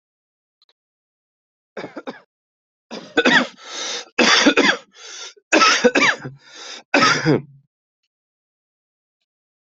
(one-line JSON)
{"expert_labels": [{"quality": "ok", "cough_type": "dry", "dyspnea": false, "wheezing": false, "stridor": false, "choking": false, "congestion": false, "nothing": true, "diagnosis": "COVID-19", "severity": "mild"}], "age": 40, "gender": "female", "respiratory_condition": false, "fever_muscle_pain": false, "status": "healthy"}